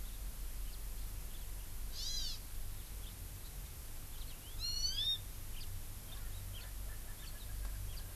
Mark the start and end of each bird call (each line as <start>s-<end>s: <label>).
1.9s-2.4s: Hawaii Amakihi (Chlorodrepanis virens)
4.6s-5.2s: Hawaii Amakihi (Chlorodrepanis virens)
5.5s-5.6s: House Finch (Haemorhous mexicanus)
6.1s-8.1s: Erckel's Francolin (Pternistis erckelii)